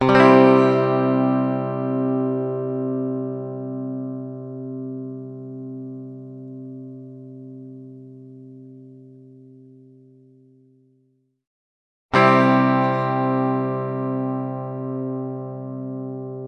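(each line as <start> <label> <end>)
0.0 Guitar chords play and fade out. 9.0
12.1 Guitar chords play and fade out. 16.5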